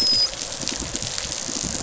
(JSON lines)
{"label": "biophony", "recorder": "SoundTrap 500"}
{"label": "biophony, dolphin", "recorder": "SoundTrap 500"}